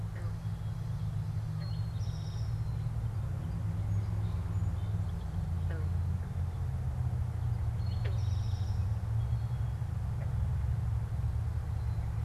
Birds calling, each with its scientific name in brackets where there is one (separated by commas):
Eastern Towhee (Pipilo erythrophthalmus), Song Sparrow (Melospiza melodia)